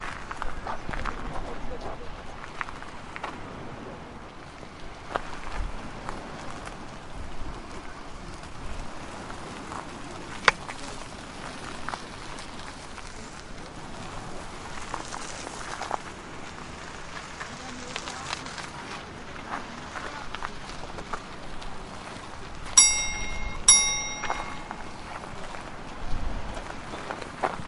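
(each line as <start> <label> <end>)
0.6 A bike rides on a rocky road. 22.1
22.6 A bicycle bell rings. 24.5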